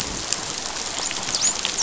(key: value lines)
label: biophony, dolphin
recorder: SoundTrap 500